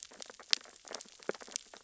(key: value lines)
label: biophony, sea urchins (Echinidae)
recorder: SoundTrap 600 or HydroMoth